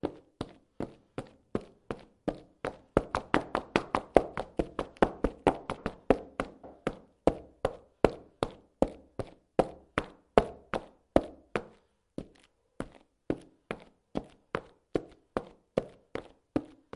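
Footsteps on a hard wooden surface. 0:00.0 - 0:17.0

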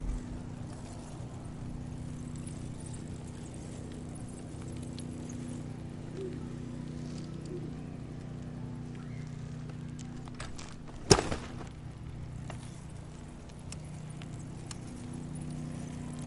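A muffled, monotonous motor noise with the sound of a bicycle spinning in the foreground. 0:00.0 - 0:16.3
A muffled monotonous motor noise is heard with a powerful bicycle turning sound in the foreground. 0:10.0 - 0:10.9
An object hits another. 0:11.0 - 0:11.8

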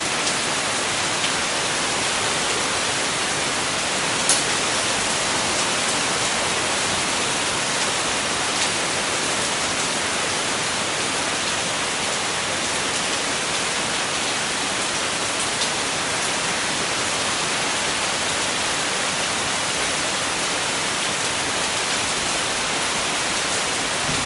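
Heavy rain loudly hitting the ground outdoors. 0:00.0 - 0:24.3
A large drop of accumulated water splashes loudly on the ground. 0:04.2 - 0:04.4
A large drop of accumulated water splashes loudly on the ground. 0:08.6 - 0:08.7
A large drop of accumulated water splashes loudly on the ground. 0:15.3 - 0:15.5

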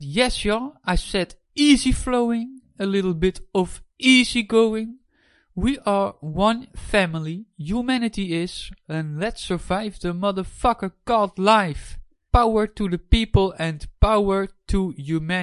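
A man is speaking loudly. 0:00.0 - 0:15.4

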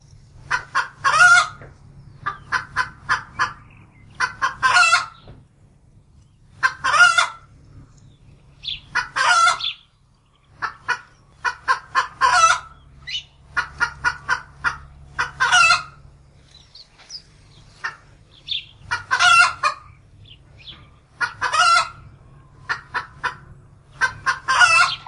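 A frantic cackle and clucking rise as hens issue a warning call, alerting the flock to a possible predator. 0:00.1 - 0:25.1

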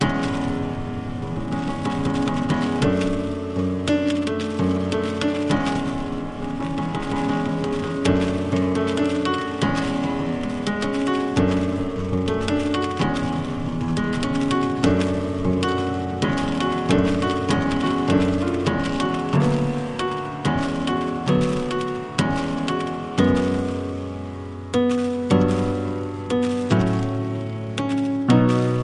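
A piano is played with distinct notes. 0:00.0 - 0:28.8

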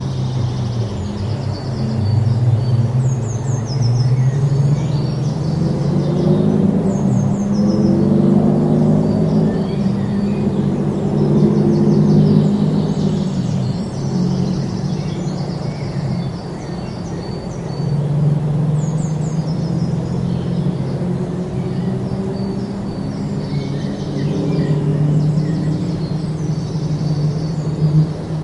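Mid-pitched, slightly bassy engine noise gradually increases and then decreases in volume as it moves away. 0:00.0 - 0:28.4
Continuous, high-pitched bird sounds with a slightly muffled quality. 0:00.0 - 0:28.4

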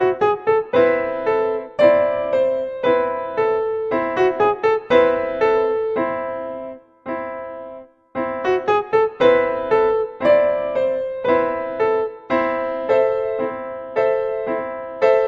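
A piano plays a melodic sequence of chords with a resonant tone and a bright melody. 0:00.0 - 0:15.3

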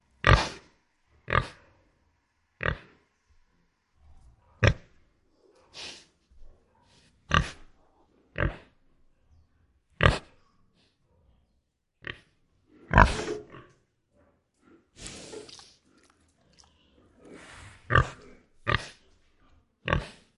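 A pig sniffs. 0:00.2 - 0:00.5
A pig snorts. 0:01.3 - 0:01.5
A pig snorts. 0:02.6 - 0:02.8
A pig snorts. 0:04.6 - 0:04.8
A pig exhales. 0:05.7 - 0:06.0
A pig snorts. 0:07.3 - 0:07.5
A pig snorts muffledly. 0:08.3 - 0:08.5
A pig snorts loudly. 0:10.0 - 0:10.2
A pig snorts. 0:12.0 - 0:12.1
A pig snorts deeply and loudly. 0:12.9 - 0:13.4
A pig inhales and chews. 0:15.0 - 0:17.8
A pig snorts. 0:17.9 - 0:18.8
People are having a muffled conversation in the background. 0:18.9 - 0:19.8
A pig snorts. 0:19.9 - 0:20.4

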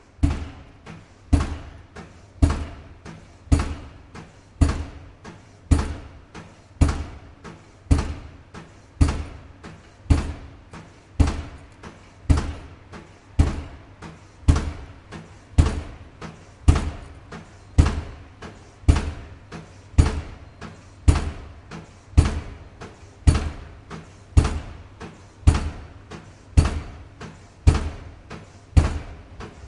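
A loud, rhythmic pile driver rammer sound with varying pitches and short interruptions. 0:00.0 - 0:29.7

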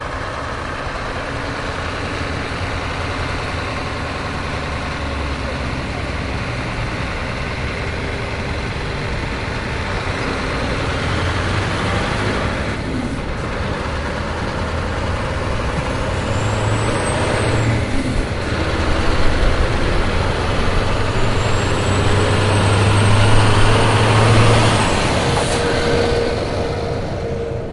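A truck changes speed consistently. 0:00.0 - 0:27.6

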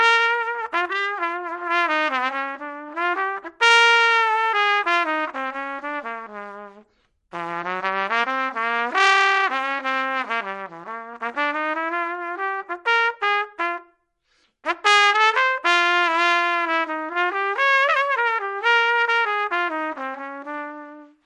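A trumpet plays a song in an isolated room without any background noise. 0:00.0 - 0:21.3

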